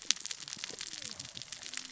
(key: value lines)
label: biophony, cascading saw
recorder: SoundTrap 600 or HydroMoth